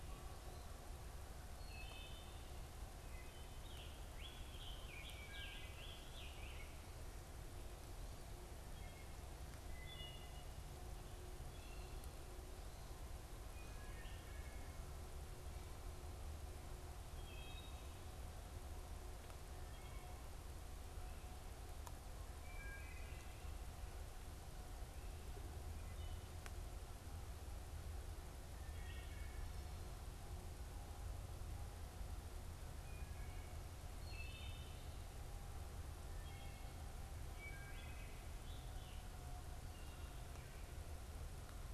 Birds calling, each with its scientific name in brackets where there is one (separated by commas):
Scarlet Tanager (Piranga olivacea), Wood Thrush (Hylocichla mustelina)